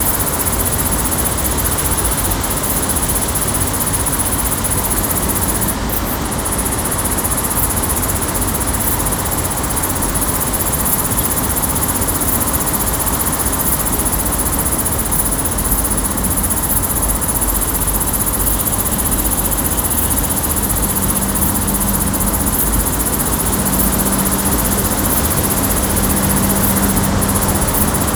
Are dogs fighting?
no